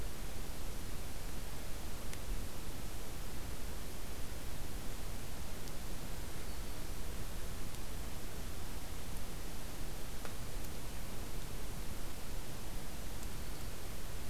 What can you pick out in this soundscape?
Black-throated Green Warbler